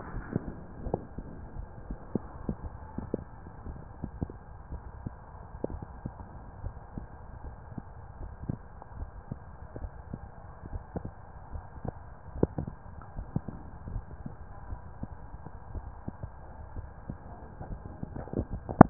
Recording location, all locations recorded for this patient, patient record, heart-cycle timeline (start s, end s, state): pulmonary valve (PV)
pulmonary valve (PV)+mitral valve (MV)
#Age: Child
#Sex: Male
#Height: 143.0 cm
#Weight: 59.1 kg
#Pregnancy status: False
#Murmur: Absent
#Murmur locations: nan
#Most audible location: nan
#Systolic murmur timing: nan
#Systolic murmur shape: nan
#Systolic murmur grading: nan
#Systolic murmur pitch: nan
#Systolic murmur quality: nan
#Diastolic murmur timing: nan
#Diastolic murmur shape: nan
#Diastolic murmur grading: nan
#Diastolic murmur pitch: nan
#Diastolic murmur quality: nan
#Outcome: Normal
#Campaign: 2015 screening campaign
0.00	3.64	unannotated
3.64	3.81	S1
3.81	4.01	systole
4.01	4.11	S2
4.11	4.70	diastole
4.70	4.82	S1
4.82	5.04	systole
5.04	5.18	S2
5.18	5.64	diastole
5.64	5.82	S1
5.82	6.02	systole
6.02	6.14	S2
6.14	6.60	diastole
6.60	6.74	S1
6.74	6.94	systole
6.94	7.08	S2
7.08	7.43	diastole
7.43	7.58	S1
7.58	7.75	systole
7.75	7.84	S2
7.84	8.18	diastole
8.18	8.32	S1
8.32	8.46	systole
8.46	8.60	S2
8.60	8.97	diastole
8.97	9.12	S1
9.12	9.28	systole
9.28	9.38	S2
9.38	9.76	diastole
9.76	9.90	S1
9.90	10.10	systole
10.10	10.20	S2
10.20	10.69	diastole
10.69	10.82	S1
10.82	11.02	systole
11.02	11.12	S2
11.12	11.51	diastole
11.51	11.64	S1
11.64	11.82	systole
11.82	11.94	S2
11.94	12.33	diastole
12.33	12.47	S1
12.47	12.65	systole
12.65	12.75	S2
12.75	13.12	diastole
13.12	13.28	S1
13.28	13.44	systole
13.44	13.60	S2
13.60	13.88	diastole
13.88	14.04	S1
14.04	14.22	systole
14.22	14.32	S2
14.32	14.68	diastole
14.68	14.82	S1
14.82	15.00	systole
15.00	15.11	S2
15.11	18.90	unannotated